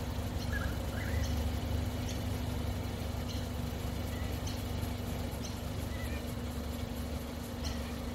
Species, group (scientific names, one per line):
Yoyetta celis
Cicadidae